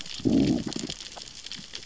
{"label": "biophony, growl", "recorder": "SoundTrap 600 or HydroMoth"}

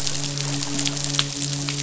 {"label": "biophony, midshipman", "recorder": "SoundTrap 500"}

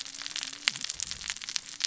{"label": "biophony, cascading saw", "recorder": "SoundTrap 600 or HydroMoth"}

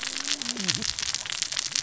{"label": "biophony, cascading saw", "recorder": "SoundTrap 600 or HydroMoth"}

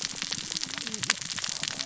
{"label": "biophony, cascading saw", "recorder": "SoundTrap 600 or HydroMoth"}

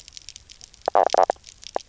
{"label": "biophony, knock croak", "recorder": "SoundTrap 300"}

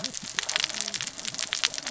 {"label": "biophony, cascading saw", "recorder": "SoundTrap 600 or HydroMoth"}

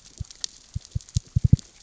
{"label": "biophony, knock", "recorder": "SoundTrap 600 or HydroMoth"}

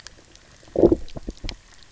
{"label": "biophony, low growl", "recorder": "SoundTrap 300"}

